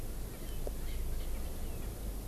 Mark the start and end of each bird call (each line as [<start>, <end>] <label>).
[1.80, 1.90] Erckel's Francolin (Pternistis erckelii)